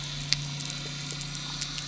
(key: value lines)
label: anthrophony, boat engine
recorder: SoundTrap 300